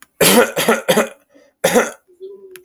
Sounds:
Cough